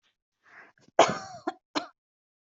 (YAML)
expert_labels:
- quality: good
  cough_type: dry
  dyspnea: false
  wheezing: false
  stridor: false
  choking: false
  congestion: false
  nothing: true
  diagnosis: obstructive lung disease
  severity: mild